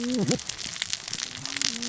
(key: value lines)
label: biophony, cascading saw
recorder: SoundTrap 600 or HydroMoth